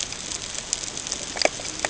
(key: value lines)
label: ambient
recorder: HydroMoth